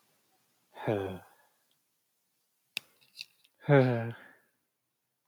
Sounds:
Sigh